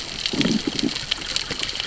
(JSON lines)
{"label": "biophony, growl", "recorder": "SoundTrap 600 or HydroMoth"}